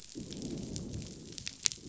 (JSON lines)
{"label": "biophony, growl", "recorder": "SoundTrap 500"}